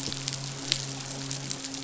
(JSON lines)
{"label": "biophony, midshipman", "recorder": "SoundTrap 500"}